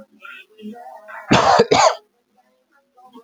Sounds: Cough